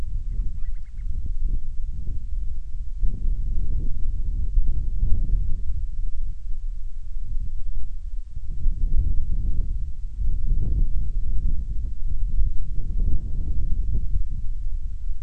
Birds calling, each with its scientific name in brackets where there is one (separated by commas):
Band-rumped Storm-Petrel (Hydrobates castro)